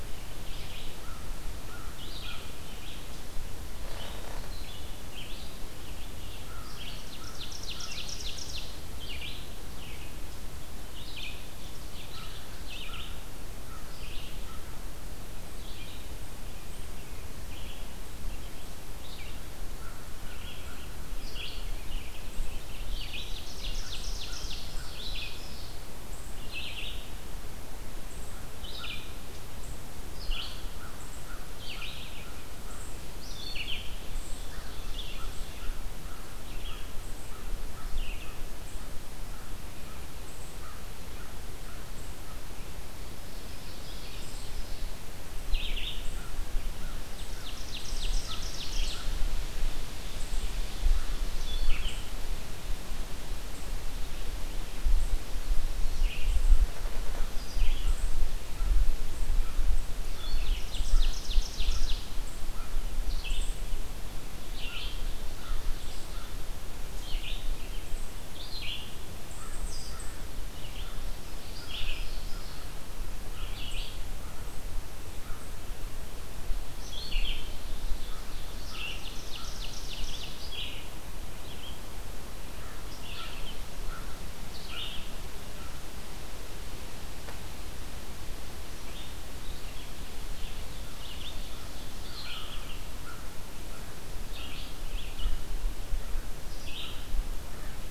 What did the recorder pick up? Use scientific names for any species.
Vireo olivaceus, Corvus brachyrhynchos, Seiurus aurocapilla